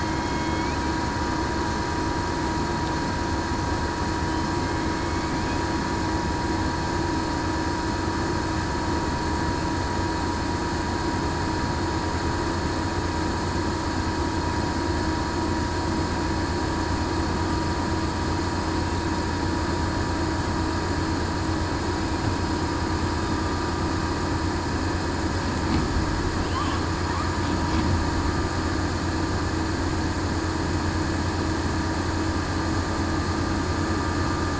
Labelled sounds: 0.0	0.7	killer whale, southern resident, 2.1 to 3.3 kHz
5.0	5.4	killer whale, southern resident, 2.1 to 2.3 kHz

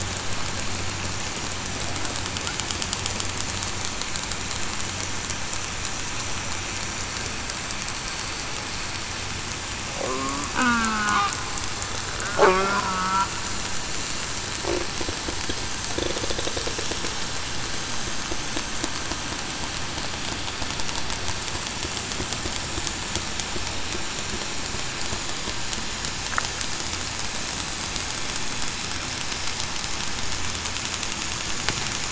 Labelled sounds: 10.1	11.2	killer whale, southern resident, 0.19 to 1.6 kHz
12.5	13.3	killer whale, southern resident, 1.3 to 1.6 kHz

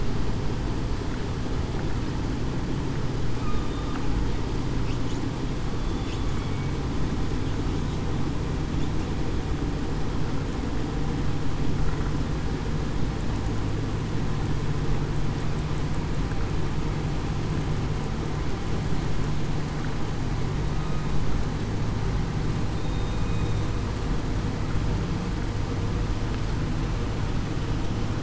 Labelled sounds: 6.3	6.7	killer whale, southern resident, 2.2 to 2.3 kHz
22.8	23.2	killer whale, southern resident, 3.66 to 3.73 kHz

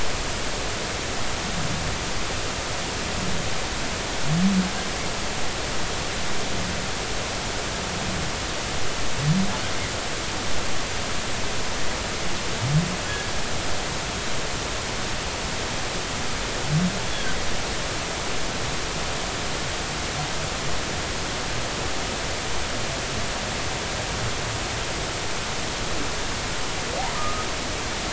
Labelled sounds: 27.1	27.5	humpback whale, 1.2 to 1.3 kHz

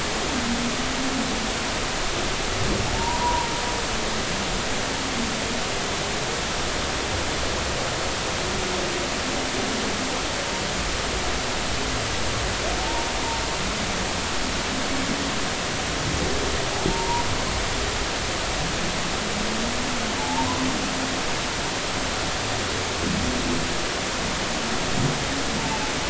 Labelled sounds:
2.9	3.5	humpback whale, 0.86 to 1.0 kHz
12.8	13.1	humpback whale, 0.86 to 1.0 kHz
16.9	17.2	humpback whale, 0.86 to 1.0 kHz
20.2	20.5	humpback whale, 0.80 to 0.96 kHz

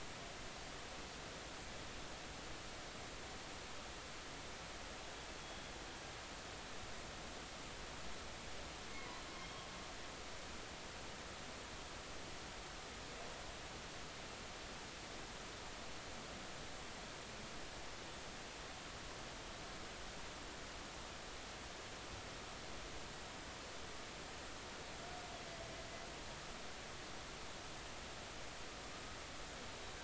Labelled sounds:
8.9	9.7	humpback whale, 0.93 to 3.3 kHz

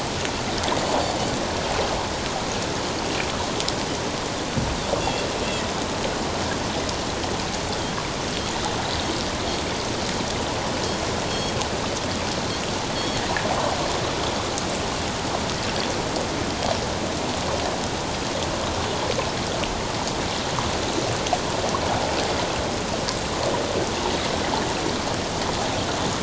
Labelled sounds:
5.0	5.3	Pacific white-sided dolphin, 2.6 to 2.8 kHz
11.3	11.5	Pacific white-sided dolphin, 4.2 to 4.4 kHz
13.0	13.2	Pacific white-sided dolphin, 4.2 to 4.5 kHz

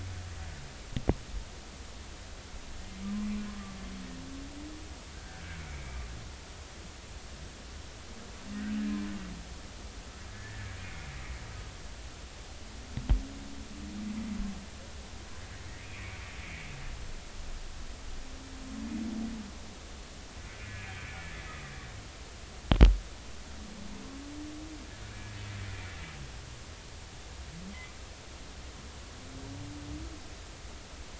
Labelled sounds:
5.1	6.0	humpback whale, 1.5 to 2.4 kHz
10.3	10.8	humpback whale, 1.6 to 1.9 kHz
15.8	16.7	humpback whale, 2.0 to 2.6 kHz

